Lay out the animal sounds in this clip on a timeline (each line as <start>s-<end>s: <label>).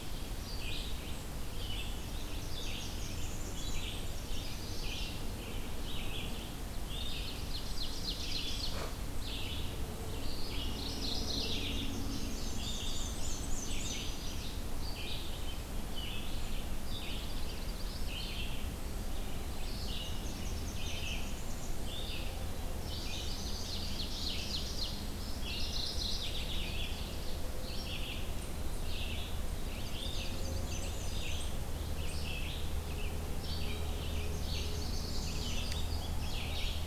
0.0s-36.9s: Red-eyed Vireo (Vireo olivaceus)
2.1s-4.2s: Blackburnian Warbler (Setophaga fusca)
4.1s-5.2s: Chestnut-sided Warbler (Setophaga pensylvanica)
6.6s-8.9s: Ovenbird (Seiurus aurocapilla)
10.6s-12.0s: Mourning Warbler (Geothlypis philadelphia)
11.4s-12.9s: Chestnut-sided Warbler (Setophaga pensylvanica)
11.6s-14.6s: Indigo Bunting (Passerina cyanea)
12.4s-14.1s: Black-and-white Warbler (Mniotilta varia)
16.8s-18.2s: Common Yellowthroat (Geothlypis trichas)
19.9s-21.9s: Blackburnian Warbler (Setophaga fusca)
23.0s-25.1s: Ovenbird (Seiurus aurocapilla)
25.4s-27.0s: Mourning Warbler (Geothlypis philadelphia)
29.5s-31.0s: Common Yellowthroat (Geothlypis trichas)
29.9s-31.6s: Black-and-white Warbler (Mniotilta varia)
31.8s-34.3s: American Robin (Turdus migratorius)
34.1s-35.8s: Blackburnian Warbler (Setophaga fusca)